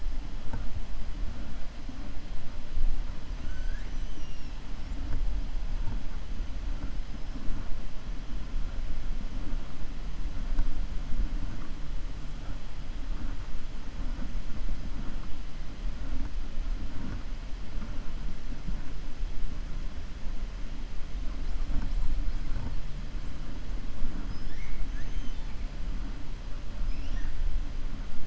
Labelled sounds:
3.4	4.6	killer whale, 1.4 to 7.7 kHz
24.8	25.6	killer whale, 1.6 to 6.4 kHz
26.8	27.4	killer whale, 1.0 to 6.0 kHz

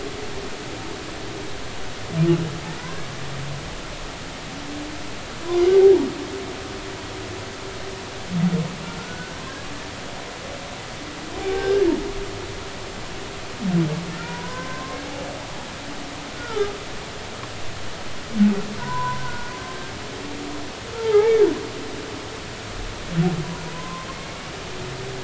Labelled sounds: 2.7	3.1	humpback whale, 1.4 to 1.7 kHz
9.0	9.4	humpback whale, 1.3 to 1.6 kHz
11.4	11.8	humpback whale, 0.80 to 1.7 kHz
14.1	15.0	humpback whale, 0.90 to 2.0 kHz
16.3	16.8	humpback whale, 1.2 to 1.5 kHz
18.8	19.5	humpback whale, 0.90 to 1.6 kHz
21.0	21.4	humpback whale, 0.80 to 2.3 kHz
23.7	24.1	humpback whale, 0.96 to 1.1 kHz

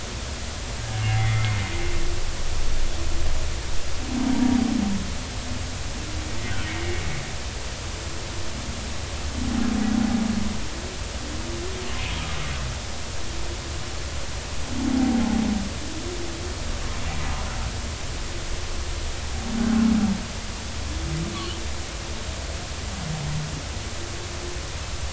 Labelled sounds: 1.0	1.6	humpback whale, 1.8 to 2.2 kHz
21.3	21.6	humpback whale, 2.8 to 3.3 kHz

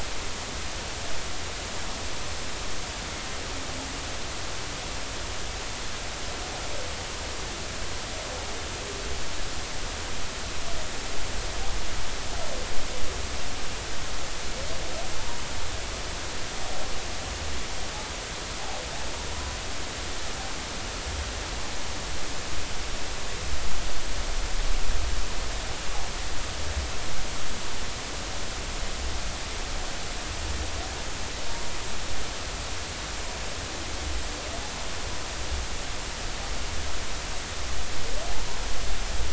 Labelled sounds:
15.2	15.4	humpback whale, 0.83 to 1.1 kHz

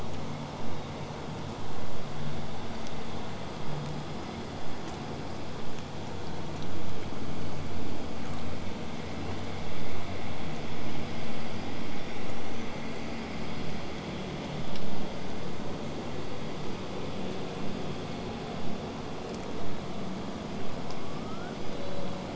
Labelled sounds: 11.7	12.7	killer whale, southern resident, 5.4 to 8.0 kHz
20.2	21.6	killer whale, southern resident, L pod, call S19, 0.99 to 8.0 kHz
21.6	22.2	killer whale, southern resident, 3.0 to 5.1 kHz

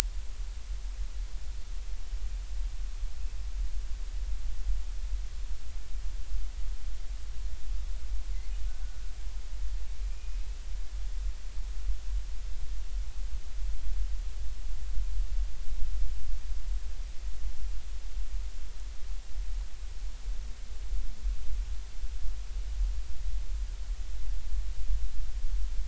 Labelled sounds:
8.8	9.1	killer whale, Bigg's (transient), 1.4 to 1.6 kHz
10.1	10.5	killer whale, Bigg's (transient), 2.3 to 2.6 kHz

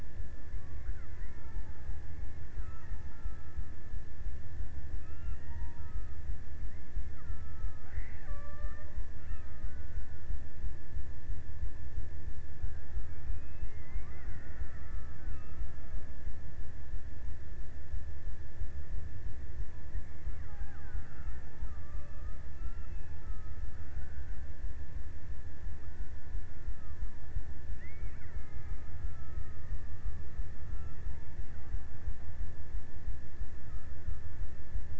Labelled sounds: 0.0	4.3	killer whale, Bigg's (transient), 0.61 to 2.9 kHz
4.6	10.0	killer whale, Bigg's (transient), 0.37 to 3.4 kHz
13.0	16.2	killer whale, Bigg's (transient), 0.78 to 2.9 kHz
20.2	24.1	killer whale, Bigg's (transient), 0.42 to 2.0 kHz
26.8	30.2	killer whale, Bigg's (transient), 1.0 to 2.7 kHz

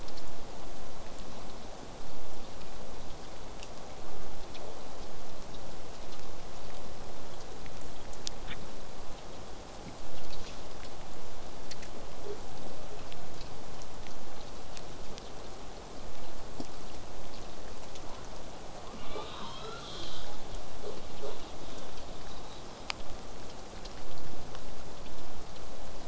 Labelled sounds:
5.0	10.0	vessel noise, 0 to 8.0 kHz
17.9	18.2	killer whale, southern resident, J pod, 0.19 to 1.6 kHz
18.8	20.5	killer whale, southern resident, J pod, 0.12 to 8.0 kHz
21.2	22.9	killer whale, southern resident, J pod, 3.1 to 4.3 kHz
21.7	21.9	killer whale, southern resident, J pod, call S05, 0.15 to 4.1 kHz

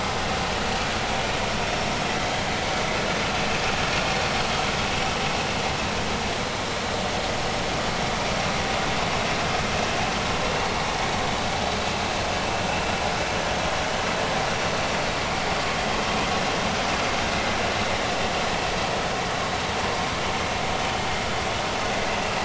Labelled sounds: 1.6	1.9	vessel noise, 5.3 to 5.5 kHz

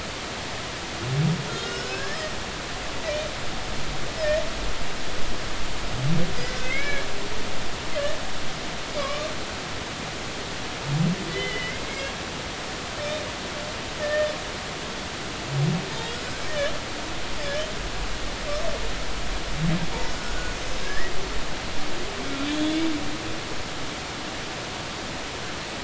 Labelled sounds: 1.5	2.3	humpback whale, 1.3 to 5.4 kHz
6.4	7.1	humpback whale, 1.5 to 5.2 kHz
9.0	9.3	humpback whale, 1.0 to 1.2 kHz
11.3	12.1	humpback whale, 1.9 to 3.1 kHz
14.0	14.3	humpback whale, 1.7 to 1.9 kHz
16.0	16.7	humpback whale, 1.6 to 7.9 kHz
20.0	21.1	humpback whale, 1.6 to 5.5 kHz
22.4	22.9	humpback whale, 3.1 to 3.6 kHz

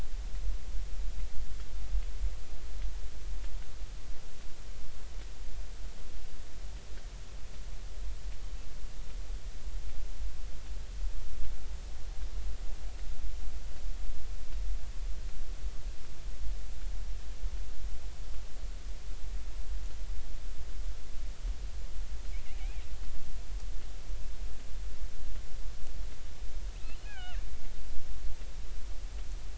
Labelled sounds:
22.5	22.8	killer whale, 2.0 to 2.7 kHz
26.8	27.4	killer whale, 1.3 to 4.3 kHz

